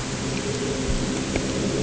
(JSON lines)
{"label": "anthrophony, boat engine", "recorder": "HydroMoth"}